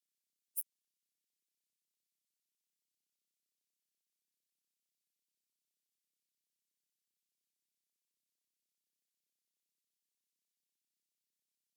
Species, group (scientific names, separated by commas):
Steropleurus andalusius, Orthoptera